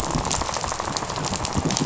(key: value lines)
label: biophony, rattle
recorder: SoundTrap 500